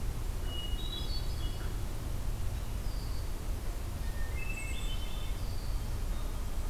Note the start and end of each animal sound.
[0.10, 2.00] Hermit Thrush (Catharus guttatus)
[3.92, 5.70] Hermit Thrush (Catharus guttatus)

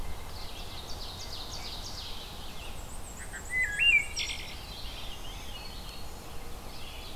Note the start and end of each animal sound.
[0.00, 1.34] White-breasted Nuthatch (Sitta carolinensis)
[0.00, 7.15] Red-eyed Vireo (Vireo olivaceus)
[0.11, 2.38] Ovenbird (Seiurus aurocapilla)
[2.32, 4.46] Black-and-white Warbler (Mniotilta varia)
[3.03, 4.73] Wood Thrush (Hylocichla mustelina)
[4.37, 5.84] Veery (Catharus fuscescens)
[4.69, 6.42] Black-throated Green Warbler (Setophaga virens)
[6.40, 7.15] Ovenbird (Seiurus aurocapilla)

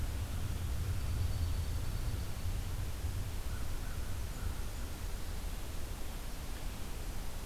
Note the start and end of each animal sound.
[0.81, 2.67] Dark-eyed Junco (Junco hyemalis)
[3.56, 4.71] American Crow (Corvus brachyrhynchos)

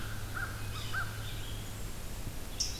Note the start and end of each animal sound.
[0.00, 1.36] American Crow (Corvus brachyrhynchos)
[0.00, 2.79] Red-eyed Vireo (Vireo olivaceus)
[0.65, 0.97] Yellow-bellied Sapsucker (Sphyrapicus varius)
[1.18, 2.31] Blackburnian Warbler (Setophaga fusca)

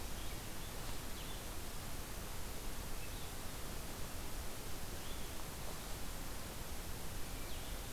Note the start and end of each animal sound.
[0.00, 1.54] Winter Wren (Troglodytes hiemalis)
[0.94, 7.92] Blue-headed Vireo (Vireo solitarius)

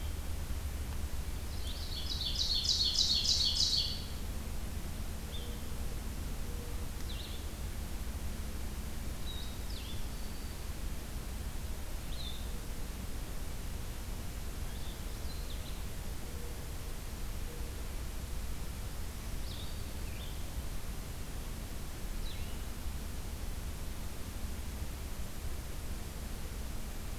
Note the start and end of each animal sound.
[0.00, 22.65] Blue-headed Vireo (Vireo solitarius)
[1.38, 4.11] Ovenbird (Seiurus aurocapilla)
[9.43, 10.78] Black-throated Green Warbler (Setophaga virens)
[18.95, 20.19] Black-throated Green Warbler (Setophaga virens)

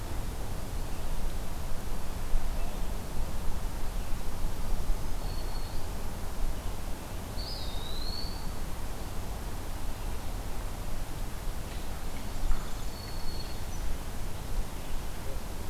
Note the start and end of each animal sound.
[4.43, 6.07] Black-throated Green Warbler (Setophaga virens)
[7.25, 8.75] Eastern Wood-Pewee (Contopus virens)
[12.25, 12.91] Black-capped Chickadee (Poecile atricapillus)
[12.47, 14.09] Black-throated Green Warbler (Setophaga virens)

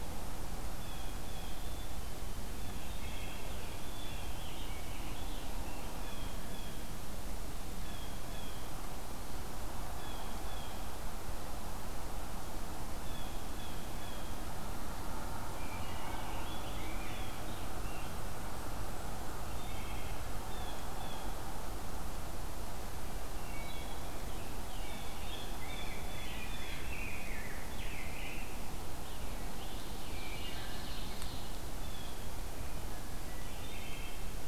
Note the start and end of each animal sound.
[0.59, 1.60] Blue Jay (Cyanocitta cristata)
[1.45, 2.52] Black-capped Chickadee (Poecile atricapillus)
[2.56, 3.48] Blue Jay (Cyanocitta cristata)
[2.85, 3.50] Wood Thrush (Hylocichla mustelina)
[3.92, 5.92] Scarlet Tanager (Piranga olivacea)
[5.86, 6.97] Blue Jay (Cyanocitta cristata)
[7.73, 8.70] Blue Jay (Cyanocitta cristata)
[9.88, 10.96] Blue Jay (Cyanocitta cristata)
[12.86, 14.59] Blue Jay (Cyanocitta cristata)
[15.47, 18.43] Rose-breasted Grosbeak (Pheucticus ludovicianus)
[19.23, 20.21] Wood Thrush (Hylocichla mustelina)
[20.46, 21.38] Blue Jay (Cyanocitta cristata)
[23.15, 24.33] Wood Thrush (Hylocichla mustelina)
[24.58, 26.84] Blue Jay (Cyanocitta cristata)
[24.98, 28.92] Rose-breasted Grosbeak (Pheucticus ludovicianus)
[29.51, 31.61] Ovenbird (Seiurus aurocapilla)
[29.73, 31.10] Wood Thrush (Hylocichla mustelina)
[31.46, 32.52] Blue Jay (Cyanocitta cristata)
[33.43, 34.48] Wood Thrush (Hylocichla mustelina)

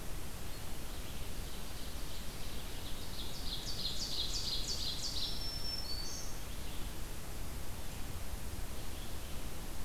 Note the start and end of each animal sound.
[0.78, 5.57] Ovenbird (Seiurus aurocapilla)
[4.68, 6.61] Black-throated Green Warbler (Setophaga virens)

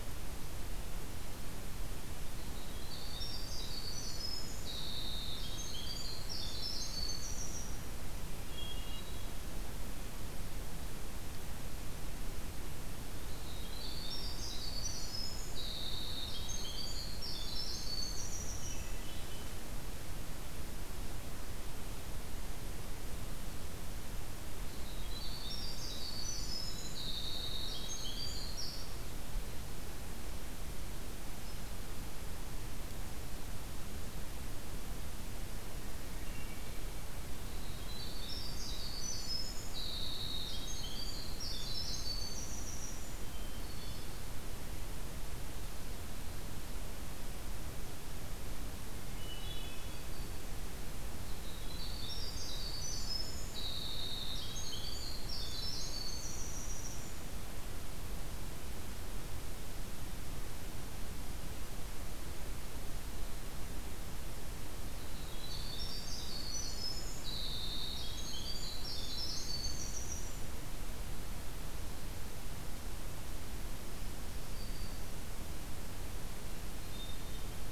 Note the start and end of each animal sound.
[2.26, 7.81] Winter Wren (Troglodytes hiemalis)
[8.32, 9.47] Hermit Thrush (Catharus guttatus)
[13.11, 19.06] Winter Wren (Troglodytes hiemalis)
[18.48, 19.85] Hermit Thrush (Catharus guttatus)
[24.58, 29.25] Winter Wren (Troglodytes hiemalis)
[36.05, 37.11] Hermit Thrush (Catharus guttatus)
[37.43, 43.27] Winter Wren (Troglodytes hiemalis)
[43.22, 44.43] Hermit Thrush (Catharus guttatus)
[49.00, 50.44] Hermit Thrush (Catharus guttatus)
[51.13, 57.41] Winter Wren (Troglodytes hiemalis)
[64.86, 70.40] Winter Wren (Troglodytes hiemalis)
[74.23, 75.21] Black-throated Green Warbler (Setophaga virens)
[76.73, 77.55] Hermit Thrush (Catharus guttatus)

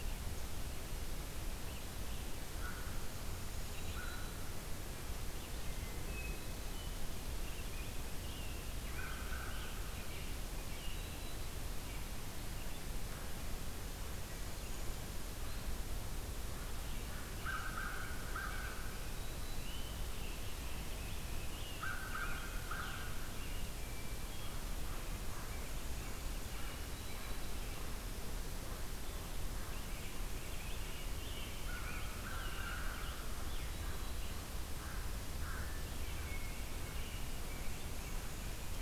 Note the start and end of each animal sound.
[2.32, 5.66] American Crow (Corvus brachyrhynchos)
[3.57, 4.49] Black-throated Green Warbler (Setophaga virens)
[5.97, 7.01] Hermit Thrush (Catharus guttatus)
[6.97, 11.11] Scarlet Tanager (Piranga olivacea)
[8.78, 9.92] American Crow (Corvus brachyrhynchos)
[10.67, 11.54] Black-throated Green Warbler (Setophaga virens)
[17.26, 18.98] American Crow (Corvus brachyrhynchos)
[18.93, 19.80] Black-throated Green Warbler (Setophaga virens)
[19.45, 23.72] Scarlet Tanager (Piranga olivacea)
[21.58, 23.08] American Crow (Corvus brachyrhynchos)
[23.70, 24.69] Hermit Thrush (Catharus guttatus)
[24.79, 27.39] American Crow (Corvus brachyrhynchos)
[26.74, 27.67] Black-throated Green Warbler (Setophaga virens)
[29.42, 33.83] Scarlet Tanager (Piranga olivacea)
[31.46, 33.15] American Crow (Corvus brachyrhynchos)
[33.57, 34.47] Black-throated Green Warbler (Setophaga virens)
[34.53, 35.84] American Crow (Corvus brachyrhynchos)
[35.55, 36.69] Hermit Thrush (Catharus guttatus)
[36.84, 38.34] American Robin (Turdus migratorius)

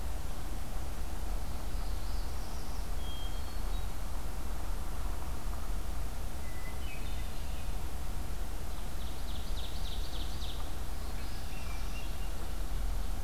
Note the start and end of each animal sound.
[1.58, 2.91] Northern Parula (Setophaga americana)
[2.85, 3.97] Hermit Thrush (Catharus guttatus)
[6.30, 7.64] Hermit Thrush (Catharus guttatus)
[8.69, 10.81] Ovenbird (Seiurus aurocapilla)
[10.86, 12.16] Northern Parula (Setophaga americana)
[11.25, 12.40] Hermit Thrush (Catharus guttatus)
[11.75, 13.23] Ovenbird (Seiurus aurocapilla)

